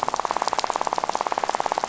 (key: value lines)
label: biophony, rattle
recorder: SoundTrap 500